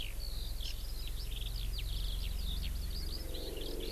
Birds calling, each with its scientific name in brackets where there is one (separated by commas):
Hawaii Amakihi (Chlorodrepanis virens), Eurasian Skylark (Alauda arvensis)